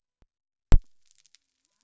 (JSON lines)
{"label": "biophony", "recorder": "SoundTrap 300"}